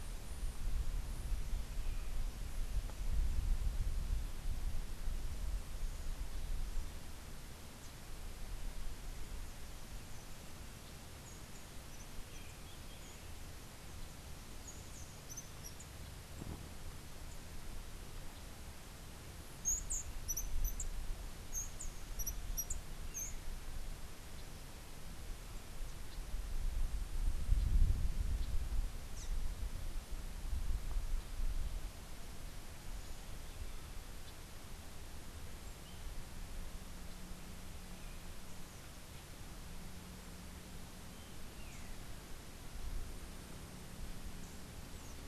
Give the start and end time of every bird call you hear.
14.5s-16.1s: Rufous-tailed Hummingbird (Amazilia tzacatl)
19.4s-23.5s: Rufous-tailed Hummingbird (Amazilia tzacatl)
23.0s-23.6s: Long-tailed Manakin (Chiroxiphia linearis)
41.3s-41.9s: Long-tailed Manakin (Chiroxiphia linearis)

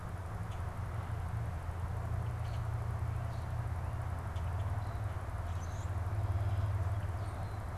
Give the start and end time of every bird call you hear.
0.0s-7.8s: Common Grackle (Quiscalus quiscula)

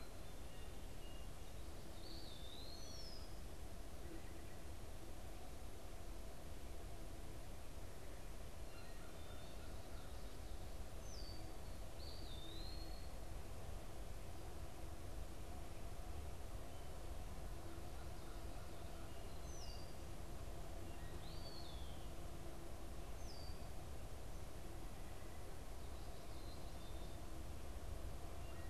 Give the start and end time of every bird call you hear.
2.7s-3.5s: Red-winged Blackbird (Agelaius phoeniceus)
8.6s-10.2s: American Crow (Corvus brachyrhynchos)
10.9s-11.6s: Red-winged Blackbird (Agelaius phoeniceus)
11.9s-13.0s: Eastern Wood-Pewee (Contopus virens)
19.3s-23.8s: Red-winged Blackbird (Agelaius phoeniceus)

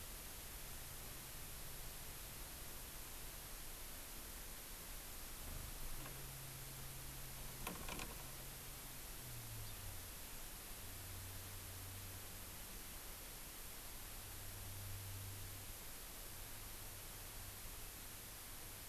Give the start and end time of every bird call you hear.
9.6s-9.7s: Hawaii Amakihi (Chlorodrepanis virens)

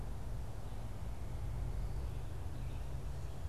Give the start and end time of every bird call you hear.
2.4s-3.5s: Tufted Titmouse (Baeolophus bicolor)

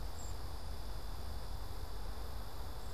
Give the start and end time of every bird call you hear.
0.0s-0.5s: Black-capped Chickadee (Poecile atricapillus)

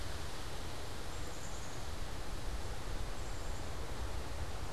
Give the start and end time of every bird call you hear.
0.0s-4.7s: Black-capped Chickadee (Poecile atricapillus)

